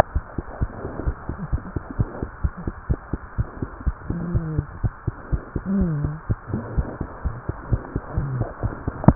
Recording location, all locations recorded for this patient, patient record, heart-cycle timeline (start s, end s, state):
tricuspid valve (TV)
pulmonary valve (PV)+tricuspid valve (TV)+mitral valve (MV)
#Age: Infant
#Sex: Female
#Height: 73.0 cm
#Weight: 8.7 kg
#Pregnancy status: False
#Murmur: Absent
#Murmur locations: nan
#Most audible location: nan
#Systolic murmur timing: nan
#Systolic murmur shape: nan
#Systolic murmur grading: nan
#Systolic murmur pitch: nan
#Systolic murmur quality: nan
#Diastolic murmur timing: nan
#Diastolic murmur shape: nan
#Diastolic murmur grading: nan
#Diastolic murmur pitch: nan
#Diastolic murmur quality: nan
#Outcome: Normal
#Campaign: 2015 screening campaign
0.00	1.04	unannotated
1.04	1.16	S1
1.16	1.28	systole
1.28	1.36	S2
1.36	1.52	diastole
1.52	1.62	S1
1.62	1.74	systole
1.74	1.82	S2
1.82	1.97	diastole
1.97	2.08	S1
2.08	2.21	systole
2.21	2.30	S2
2.30	2.42	diastole
2.42	2.51	S1
2.51	2.65	systole
2.65	2.74	S2
2.74	2.87	diastole
2.87	2.98	S1
2.98	3.11	systole
3.11	3.20	S2
3.20	3.37	diastole
3.37	3.48	S1
3.48	3.59	systole
3.59	3.68	S2
3.68	3.85	diastole
3.85	3.96	S1
3.96	4.08	systole
4.08	4.16	S2
4.16	4.34	diastole
4.34	4.41	S1
4.41	4.56	systole
4.56	4.64	S2
4.64	4.82	diastole
4.82	4.92	S1
4.92	5.05	systole
5.05	5.14	S2
5.14	5.30	diastole
5.30	5.42	S1
5.42	5.54	systole
5.54	5.62	S2
5.62	5.79	diastole
5.79	5.87	S1
5.87	6.02	systole
6.02	6.09	S2
6.09	6.28	diastole
6.28	6.38	S1
6.38	6.52	systole
6.52	6.59	S2
6.59	6.76	diastole
6.76	6.86	S1
6.86	6.98	systole
6.98	7.08	S2
7.08	7.23	diastole
7.23	7.34	S1
7.34	7.46	systole
7.46	7.53	S2
7.53	7.70	diastole
7.70	7.82	S1
7.82	7.93	systole
7.93	8.02	S2
8.02	8.16	diastole
8.16	8.23	S1
8.23	8.40	systole
8.40	8.46	S2
8.46	8.63	diastole
8.63	8.74	S1
8.74	8.87	systole
8.87	8.93	S2
8.93	9.15	unannotated